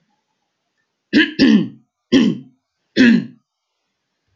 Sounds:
Throat clearing